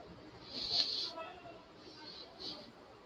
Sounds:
Sniff